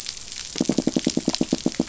{"label": "biophony, knock", "recorder": "SoundTrap 500"}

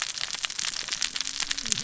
{"label": "biophony, cascading saw", "recorder": "SoundTrap 600 or HydroMoth"}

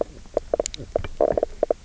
{"label": "biophony, knock croak", "recorder": "SoundTrap 300"}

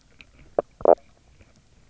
{"label": "biophony, knock croak", "recorder": "SoundTrap 300"}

